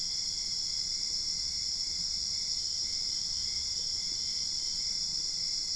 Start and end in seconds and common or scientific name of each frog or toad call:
none